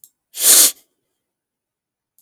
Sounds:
Sniff